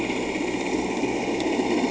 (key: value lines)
label: anthrophony, boat engine
recorder: HydroMoth